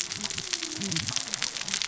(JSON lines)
{"label": "biophony, cascading saw", "recorder": "SoundTrap 600 or HydroMoth"}